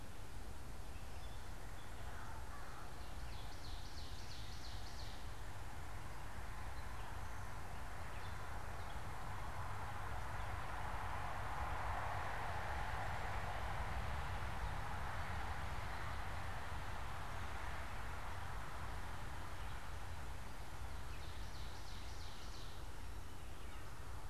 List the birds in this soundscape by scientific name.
Corvus brachyrhynchos, Seiurus aurocapilla